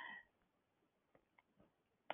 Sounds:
Laughter